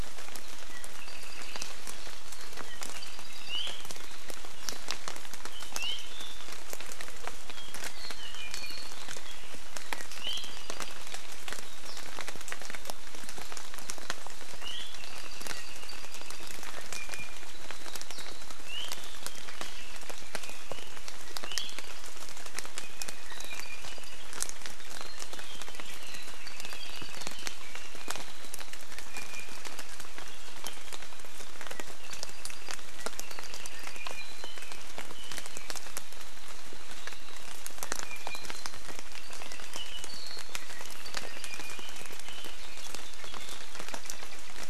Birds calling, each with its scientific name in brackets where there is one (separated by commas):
Iiwi (Drepanis coccinea), Apapane (Himatione sanguinea), Red-billed Leiothrix (Leiothrix lutea)